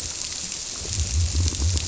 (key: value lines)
label: biophony
recorder: SoundTrap 300